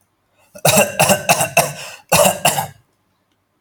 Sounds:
Cough